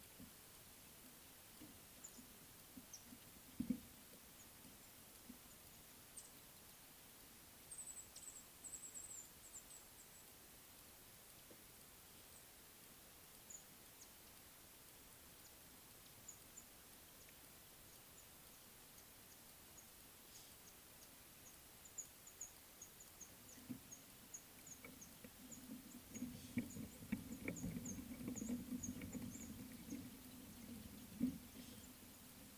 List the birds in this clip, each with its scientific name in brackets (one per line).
Mouse-colored Penduline-Tit (Anthoscopus musculus)